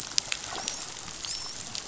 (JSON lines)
{"label": "biophony, dolphin", "recorder": "SoundTrap 500"}